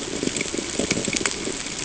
{"label": "ambient", "recorder": "HydroMoth"}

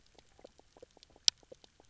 {"label": "biophony, knock croak", "recorder": "SoundTrap 300"}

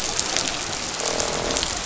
{"label": "biophony, croak", "recorder": "SoundTrap 500"}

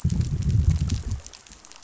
{"label": "biophony, growl", "recorder": "SoundTrap 500"}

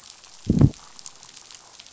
{"label": "biophony, growl", "recorder": "SoundTrap 500"}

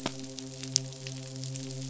{"label": "biophony, midshipman", "recorder": "SoundTrap 500"}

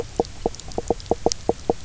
{"label": "biophony, knock croak", "recorder": "SoundTrap 300"}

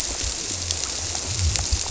{"label": "biophony", "recorder": "SoundTrap 300"}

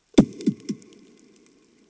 {"label": "anthrophony, bomb", "recorder": "HydroMoth"}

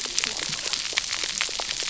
{"label": "biophony, cascading saw", "recorder": "SoundTrap 300"}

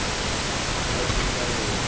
{"label": "ambient", "recorder": "HydroMoth"}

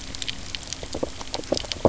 {"label": "biophony, knock croak", "recorder": "SoundTrap 300"}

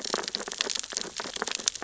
{"label": "biophony, sea urchins (Echinidae)", "recorder": "SoundTrap 600 or HydroMoth"}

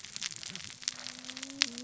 {"label": "biophony, cascading saw", "recorder": "SoundTrap 600 or HydroMoth"}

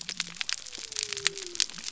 {"label": "biophony", "recorder": "SoundTrap 300"}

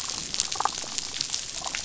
{"label": "biophony, damselfish", "recorder": "SoundTrap 500"}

